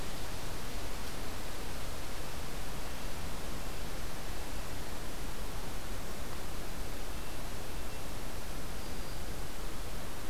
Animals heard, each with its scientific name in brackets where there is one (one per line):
Black-throated Green Warbler (Setophaga virens)